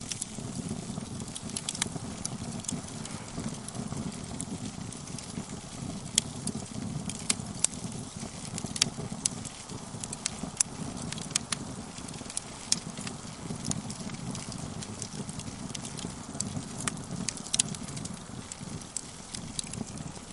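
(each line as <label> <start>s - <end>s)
Moderate crackling of a fire. 0.0s - 20.3s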